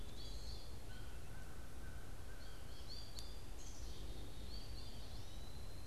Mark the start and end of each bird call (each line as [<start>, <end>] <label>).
[0.00, 5.87] American Goldfinch (Spinus tristis)
[0.00, 5.87] Black-capped Chickadee (Poecile atricapillus)
[0.00, 5.87] Eastern Wood-Pewee (Contopus virens)
[0.73, 2.83] American Crow (Corvus brachyrhynchos)